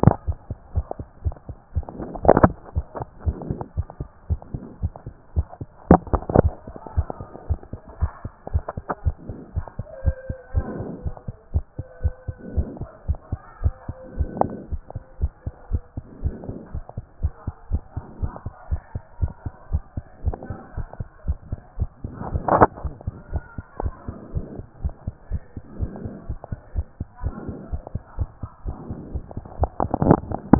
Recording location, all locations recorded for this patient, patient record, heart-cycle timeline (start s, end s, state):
tricuspid valve (TV)
pulmonary valve (PV)+tricuspid valve (TV)+mitral valve (MV)
#Age: Child
#Sex: Female
#Height: 134.0 cm
#Weight: 29.6 kg
#Pregnancy status: False
#Murmur: Absent
#Murmur locations: nan
#Most audible location: nan
#Systolic murmur timing: nan
#Systolic murmur shape: nan
#Systolic murmur grading: nan
#Systolic murmur pitch: nan
#Systolic murmur quality: nan
#Diastolic murmur timing: nan
#Diastolic murmur shape: nan
#Diastolic murmur grading: nan
#Diastolic murmur pitch: nan
#Diastolic murmur quality: nan
#Outcome: Abnormal
#Campaign: 2014 screening campaign
0.00	9.54	unannotated
9.54	9.66	S1
9.66	9.78	systole
9.78	9.86	S2
9.86	10.04	diastole
10.04	10.16	S1
10.16	10.28	systole
10.28	10.36	S2
10.36	10.54	diastole
10.54	10.66	S1
10.66	10.78	systole
10.78	10.88	S2
10.88	11.04	diastole
11.04	11.14	S1
11.14	11.26	systole
11.26	11.36	S2
11.36	11.54	diastole
11.54	11.64	S1
11.64	11.78	systole
11.78	11.86	S2
11.86	12.02	diastole
12.02	12.14	S1
12.14	12.26	systole
12.26	12.36	S2
12.36	12.54	diastole
12.54	12.68	S1
12.68	12.80	systole
12.80	12.88	S2
12.88	13.08	diastole
13.08	13.18	S1
13.18	13.30	systole
13.30	13.40	S2
13.40	13.62	diastole
13.62	13.74	S1
13.74	13.88	systole
13.88	13.96	S2
13.96	14.18	diastole
14.18	14.30	S1
14.30	14.42	systole
14.42	14.52	S2
14.52	14.70	diastole
14.70	14.82	S1
14.82	14.94	systole
14.94	15.02	S2
15.02	15.20	diastole
15.20	15.32	S1
15.32	15.44	systole
15.44	15.54	S2
15.54	15.72	diastole
15.72	15.82	S1
15.82	15.96	systole
15.96	16.04	S2
16.04	16.22	diastole
16.22	16.34	S1
16.34	16.48	systole
16.48	16.58	S2
16.58	16.74	diastole
16.74	16.84	S1
16.84	16.96	systole
16.96	17.04	S2
17.04	17.22	diastole
17.22	17.32	S1
17.32	17.46	systole
17.46	17.54	S2
17.54	17.70	diastole
17.70	17.82	S1
17.82	17.96	systole
17.96	18.04	S2
18.04	18.20	diastole
18.20	18.32	S1
18.32	18.44	systole
18.44	18.52	S2
18.52	18.70	diastole
18.70	18.82	S1
18.82	18.94	systole
18.94	19.02	S2
19.02	19.20	diastole
19.20	19.32	S1
19.32	19.44	systole
19.44	19.52	S2
19.52	19.72	diastole
19.72	19.82	S1
19.82	19.96	systole
19.96	20.04	S2
20.04	20.24	diastole
20.24	20.36	S1
20.36	20.50	systole
20.50	20.58	S2
20.58	20.76	diastole
20.76	20.88	S1
20.88	20.98	systole
20.98	21.08	S2
21.08	21.26	diastole
21.26	21.38	S1
21.38	21.50	systole
21.50	21.60	S2
21.60	21.80	diastole
21.80	21.90	S1
21.90	22.02	systole
22.02	22.12	S2
22.12	22.32	diastole
22.32	30.59	unannotated